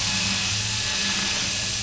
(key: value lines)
label: anthrophony, boat engine
recorder: SoundTrap 500